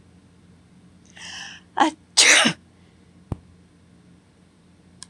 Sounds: Sneeze